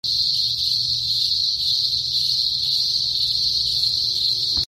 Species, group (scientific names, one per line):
Cyclochila australasiae
Cicadidae